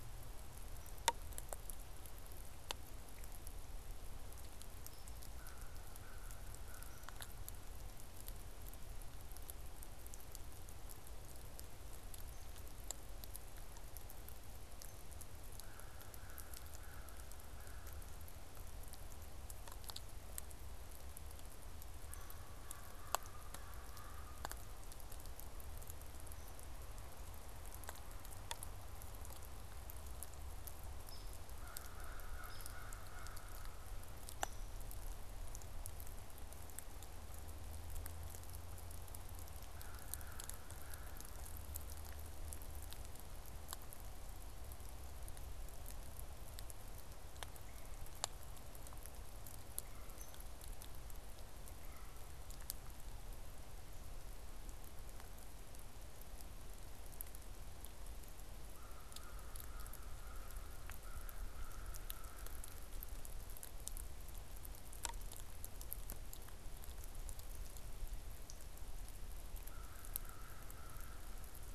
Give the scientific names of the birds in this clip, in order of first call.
Corvus brachyrhynchos, Dryobates villosus